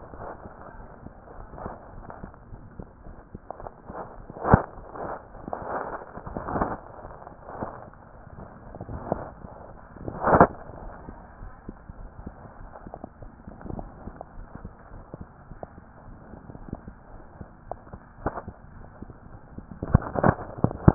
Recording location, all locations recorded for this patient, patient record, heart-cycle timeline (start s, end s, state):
mitral valve (MV)
aortic valve (AV)+pulmonary valve (PV)+mitral valve (MV)
#Age: Child
#Sex: Female
#Height: 153.0 cm
#Weight: 37.6 kg
#Pregnancy status: False
#Murmur: Unknown
#Murmur locations: nan
#Most audible location: nan
#Systolic murmur timing: nan
#Systolic murmur shape: nan
#Systolic murmur grading: nan
#Systolic murmur pitch: nan
#Systolic murmur quality: nan
#Diastolic murmur timing: nan
#Diastolic murmur shape: nan
#Diastolic murmur grading: nan
#Diastolic murmur pitch: nan
#Diastolic murmur quality: nan
#Outcome: Normal
#Campaign: 2015 screening campaign
0.00	10.80	unannotated
10.80	10.94	S1
10.94	11.06	systole
11.06	11.16	S2
11.16	11.42	diastole
11.42	11.52	S1
11.52	11.64	systole
11.64	11.76	S2
11.76	11.98	diastole
11.98	12.10	S1
12.10	12.20	systole
12.20	12.34	S2
12.34	12.57	diastole
12.57	12.70	S1
12.70	12.84	systole
12.84	12.94	S2
12.94	13.18	diastole
13.18	13.32	S1
13.32	13.41	systole
13.41	13.52	S2
13.52	13.72	diastole
13.72	13.90	S1
13.90	14.04	systole
14.04	14.14	S2
14.14	14.33	diastole
14.33	14.48	S1
14.48	14.62	systole
14.62	14.72	S2
14.72	14.91	diastole
14.91	15.04	S1
15.04	15.18	systole
15.18	15.28	S2
15.28	15.49	diastole
15.49	15.58	S1
15.58	15.72	systole
15.72	15.85	S2
15.85	16.08	diastole
16.08	16.18	S1
16.18	16.32	systole
16.32	16.40	S2
16.40	16.62	diastole
16.62	16.72	S1
16.72	16.84	systole
16.84	16.92	S2
16.92	17.11	diastole
17.11	17.24	S1
17.24	17.36	systole
17.36	17.48	S2
17.48	17.68	diastole
17.68	17.80	S1
17.80	17.90	systole
17.90	17.98	S2
17.98	18.22	diastole
18.22	18.34	S1
18.34	18.46	systole
18.46	18.54	S2
18.54	18.74	diastole
18.74	18.88	S1
18.88	19.00	systole
19.00	19.10	S2
19.10	19.30	diastole
19.30	19.44	S1
19.44	19.56	systole
19.56	19.66	S2
19.66	20.94	unannotated